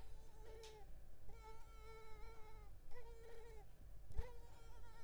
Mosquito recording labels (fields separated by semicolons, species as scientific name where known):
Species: Culex tigripes; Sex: female; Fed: unfed; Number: one; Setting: cup